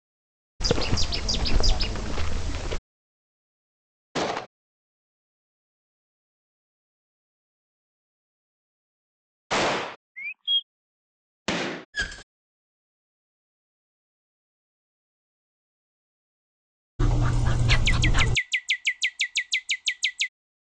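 At the start, a bird can be heard. Then about 4 seconds in, gunfire is audible. About 10 seconds in, there is gunfire. Next, about 10 seconds in, you can hear chirping. After that, about 11 seconds in, gunfire can be heard. About 12 seconds in, a window opens. About 17 seconds in, you can hear a dog. Over it, a bird vocalizes.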